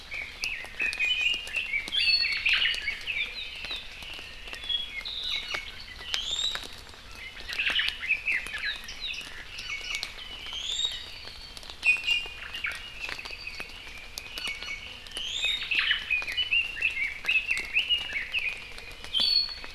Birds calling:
Omao (Myadestes obscurus), Iiwi (Drepanis coccinea), Red-billed Leiothrix (Leiothrix lutea), Apapane (Himatione sanguinea)

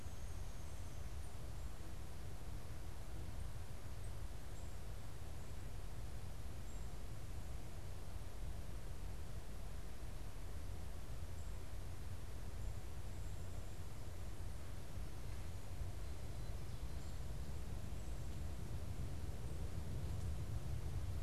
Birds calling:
Black-capped Chickadee (Poecile atricapillus)

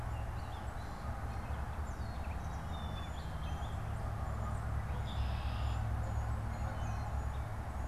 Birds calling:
Black-capped Chickadee (Poecile atricapillus), Gray Catbird (Dumetella carolinensis), Red-winged Blackbird (Agelaius phoeniceus)

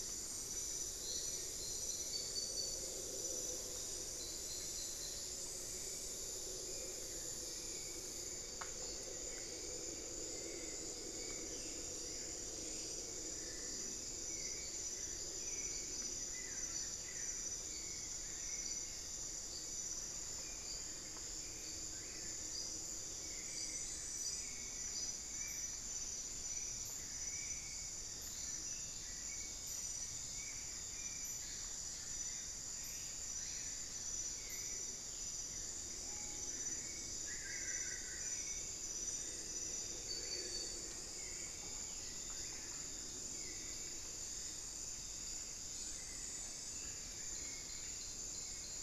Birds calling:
Hauxwell's Thrush (Turdus hauxwelli), Spot-winged Antshrike (Pygiptila stellaris), Solitary Black Cacique (Cacicus solitarius), Screaming Piha (Lipaugus vociferans), Buff-throated Woodcreeper (Xiphorhynchus guttatus)

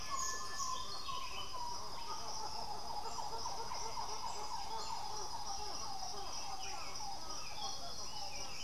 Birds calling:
Piratic Flycatcher (Legatus leucophaius), Buff-throated Saltator (Saltator maximus), White-winged Becard (Pachyramphus polychopterus)

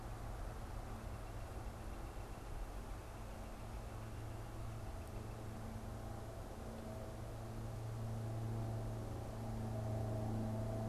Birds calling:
Northern Flicker (Colaptes auratus)

